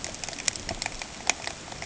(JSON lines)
{"label": "ambient", "recorder": "HydroMoth"}